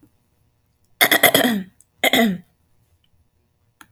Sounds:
Throat clearing